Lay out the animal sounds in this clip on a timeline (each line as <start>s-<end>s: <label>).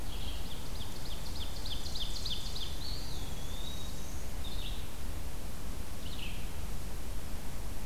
0.1s-2.7s: Ovenbird (Seiurus aurocapilla)
2.7s-4.1s: Eastern Wood-Pewee (Contopus virens)
4.3s-6.8s: Red-eyed Vireo (Vireo olivaceus)